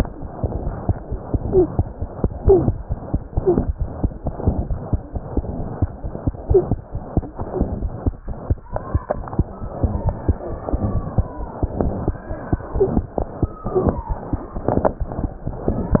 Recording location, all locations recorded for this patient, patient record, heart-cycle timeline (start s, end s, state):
mitral valve (MV)
aortic valve (AV)+pulmonary valve (PV)+tricuspid valve (TV)+mitral valve (MV)
#Age: Child
#Sex: Female
#Height: 118.0 cm
#Weight: 17.0 kg
#Pregnancy status: False
#Murmur: Present
#Murmur locations: mitral valve (MV)
#Most audible location: mitral valve (MV)
#Systolic murmur timing: Holosystolic
#Systolic murmur shape: Plateau
#Systolic murmur grading: I/VI
#Systolic murmur pitch: Medium
#Systolic murmur quality: Blowing
#Diastolic murmur timing: nan
#Diastolic murmur shape: nan
#Diastolic murmur grading: nan
#Diastolic murmur pitch: nan
#Diastolic murmur quality: nan
#Outcome: Abnormal
#Campaign: 2015 screening campaign
0.00	4.67	unannotated
4.67	4.76	S1
4.76	4.89	systole
4.89	4.99	S2
4.99	5.12	diastole
5.12	5.21	S1
5.21	5.35	systole
5.35	5.43	S2
5.43	5.56	diastole
5.56	5.68	S1
5.68	5.79	systole
5.79	5.88	S2
5.88	6.01	diastole
6.01	6.11	S1
6.11	6.24	systole
6.24	6.34	S2
6.34	6.90	unannotated
6.90	7.00	S1
7.00	7.12	systole
7.12	7.22	S2
7.22	7.37	diastole
7.37	7.47	S1
7.47	7.58	systole
7.58	7.66	S2
7.66	7.81	diastole
7.81	7.91	S1
7.91	8.04	systole
8.04	8.14	S2
8.14	8.25	diastole
8.25	8.34	S1
8.34	8.47	systole
8.47	8.56	S2
8.56	8.69	diastole
8.69	8.79	S1
8.79	8.90	systole
8.90	9.01	S2
9.01	9.15	diastole
9.15	9.25	S1
9.25	9.35	systole
9.35	9.44	S2
9.44	9.58	diastole
9.58	9.70	S1
9.70	16.00	unannotated